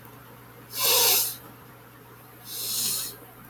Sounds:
Sniff